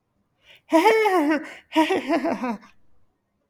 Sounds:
Laughter